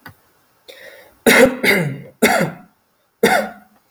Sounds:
Cough